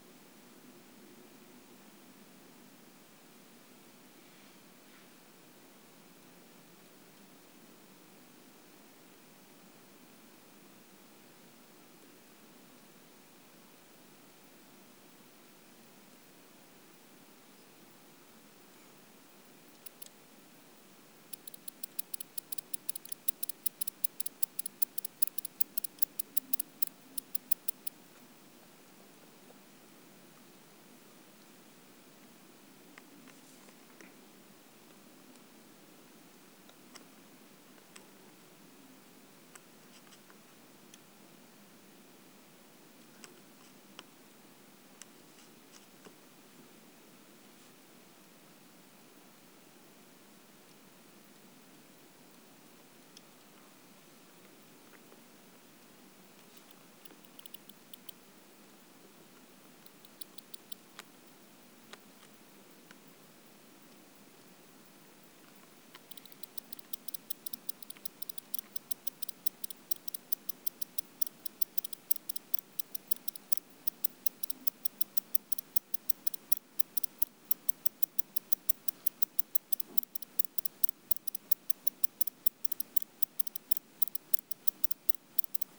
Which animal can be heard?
Barbitistes fischeri, an orthopteran